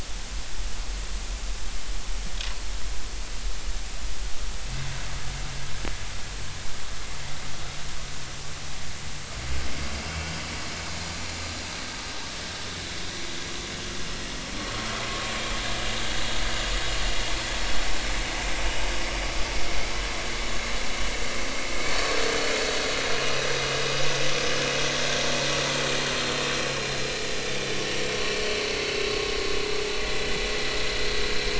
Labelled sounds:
23.1	23.4	vessel noise, 2.8 to 2.9 kHz
28.3	28.6	vessel noise, 4.2 to 4.6 kHz

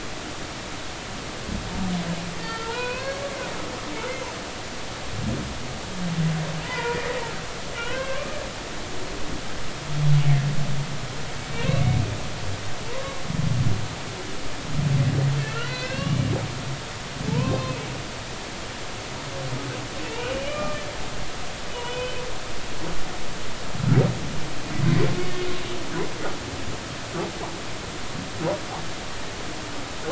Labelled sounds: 2.4	3.2	humpback whale, 0.93 to 4.6 kHz
6.6	7.0	humpback whale, 0.86 to 2.1 kHz
7.8	8.3	humpback whale, 0.93 to 3.3 kHz
12.9	13.2	humpback whale, 0.90 to 1.2 kHz
15.4	16.2	humpback whale, 1.3 to 4.5 kHz
17.3	17.8	humpback whale, 0.83 to 3.7 kHz
20.0	20.8	humpback whale, 1.1 to 3.0 kHz
21.7	22.1	humpback whale, 2.4 to 3.1 kHz

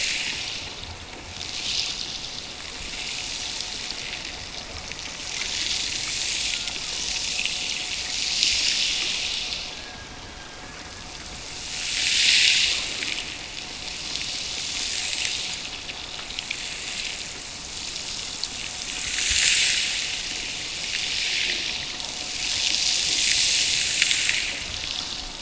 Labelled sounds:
6.4	7.3	killer whale, Bigg's (transient), Gulf of Alaska transient, 0.59 to 1.6 kHz

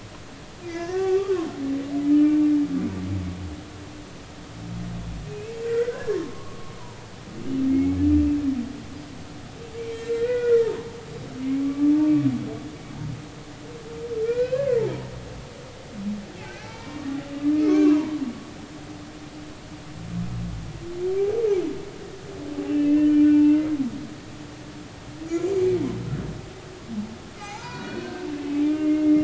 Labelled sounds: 0.6	1.5	humpback whale, 0.99 to 4.9 kHz
2.1	2.4	humpback whale, 1.2 to 2.5 kHz
5.3	7.1	humpback whale, 0.83 to 2.7 kHz
7.7	8.2	humpback whale, 1.7 to 2.3 kHz
9.8	10.7	humpback whale, 1.3 to 2.5 kHz
11.6	11.9	humpback whale, 1.1 to 1.2 kHz
14.2	14.7	humpback whale, 1.3 to 2.8 kHz
16.4	17.0	humpback whale, 0.80 to 2.7 kHz
17.6	18.2	humpback whale, 0.86 to 2.4 kHz
22.7	23.7	humpback whale, 1.8 to 2.8 kHz
25.5	25.8	humpback whale, 2.2 to 2.3 kHz
27.4	29.2	humpback whale, 0.80 to 6.3 kHz

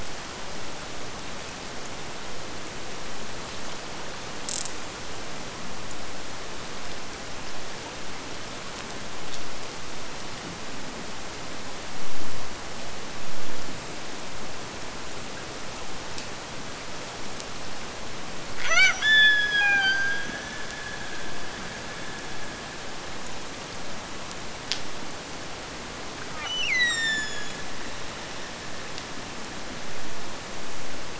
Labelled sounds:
18.5	23.0	killer whale, Bigg's (transient), Gulf of Alaska transient, 0.44 to 8.0 kHz
26.3	28.2	killer whale, Bigg's (transient), Gulf of Alaska transient, 0.55 to 8.0 kHz

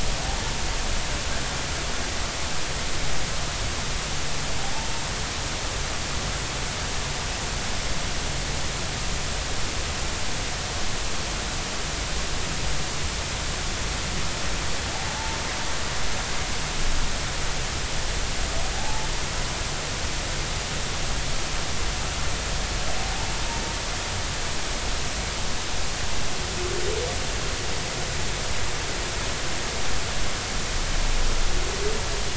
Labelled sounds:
18.8	19.1	humpback whale, 0.80 to 0.96 kHz

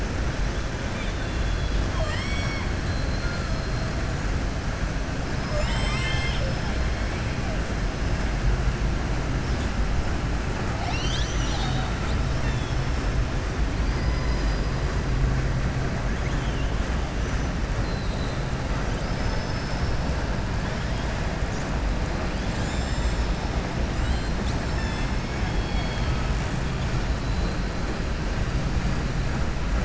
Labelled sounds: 0.8	3.7	killer whale, southern resident, 0.68 to 8.0 kHz
13.8	14.7	killer whale, southern resident, 4.0 to 5.1 kHz
17.8	18.4	killer whale, southern resident, 3.6 to 4.3 kHz
18.9	20.0	killer whale, southern resident, 4.4 to 6.1 kHz
25.2	26.3	killer whale, southern resident, 1.7 to 4.9 kHz

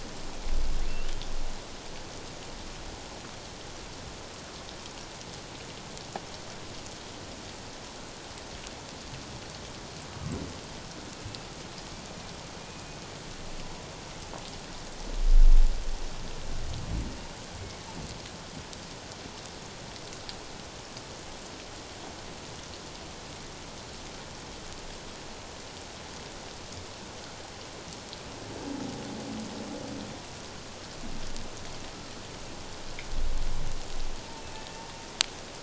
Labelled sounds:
34.4	34.8	humpback whale, 1.7 to 2.7 kHz

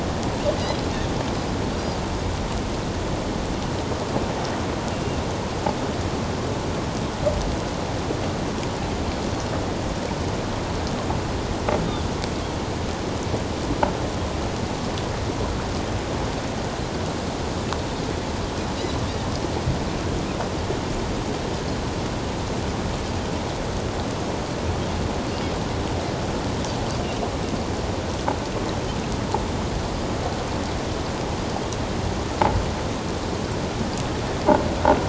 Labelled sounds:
4.9	5.2	Pacific white-sided dolphin, 2.6 to 2.9 kHz

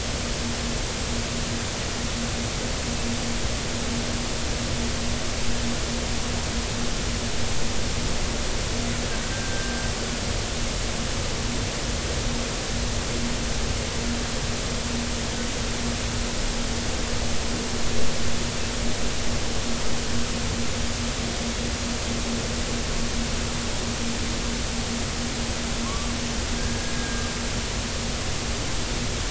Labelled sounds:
9.3	9.8	humpback whale, 1.5 to 1.6 kHz
25.8	27.3	humpback whale, 0.99 to 1.7 kHz

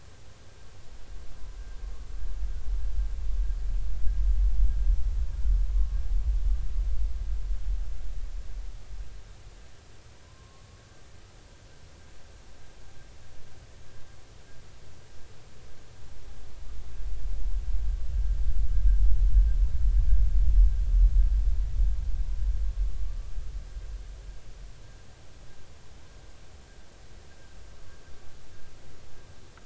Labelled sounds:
5.7	6.0	humpback whale, 1.0 to 1.2 kHz
10.2	11.0	humpback whale, 0.93 to 1.6 kHz
23.1	23.3	humpback whale, 1.1 to 1.2 kHz

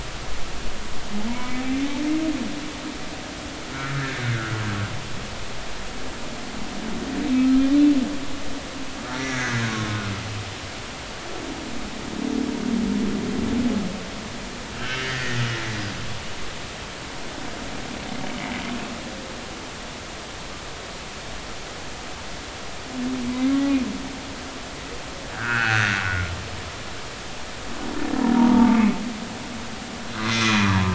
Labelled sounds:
1.3	1.6	humpback whale, 0.90 to 2.3 kHz
3.7	4.6	humpback whale, 1.2 to 1.8 kHz
7.4	7.6	humpback whale, 1.2 to 1.4 kHz
9.2	10.0	humpback whale, 1.0 to 2.2 kHz
14.8	15.4	humpback whale, 1.7 to 3.2 kHz
23.3	23.6	humpback whale, 2.0 to 2.2 kHz
25.3	26.0	humpback whale, 1.3 to 2.7 kHz
28.3	28.8	humpback whale, 0.83 to 1.3 kHz
30.2	30.9	humpback whale, 0.83 to 6.3 kHz

